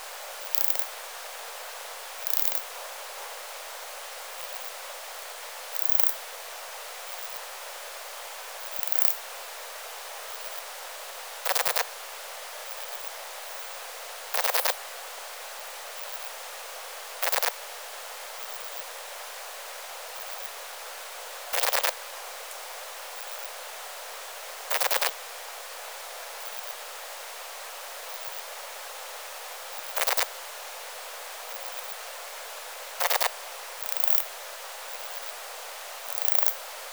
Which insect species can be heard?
Poecilimon chopardi